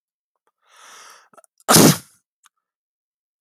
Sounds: Sneeze